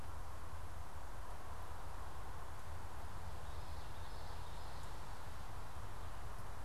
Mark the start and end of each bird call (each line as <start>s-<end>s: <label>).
3.3s-4.9s: Common Yellowthroat (Geothlypis trichas)